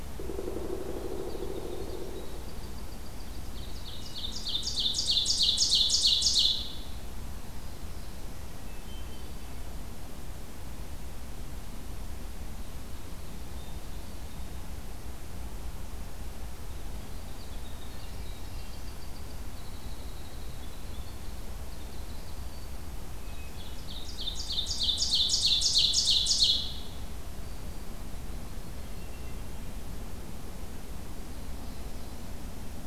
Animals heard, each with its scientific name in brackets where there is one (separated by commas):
Hermit Thrush (Catharus guttatus), Winter Wren (Troglodytes hiemalis), Yellow-rumped Warbler (Setophaga coronata), Black-throated Green Warbler (Setophaga virens), Ovenbird (Seiurus aurocapilla), Black-throated Blue Warbler (Setophaga caerulescens), Pileated Woodpecker (Dryocopus pileatus)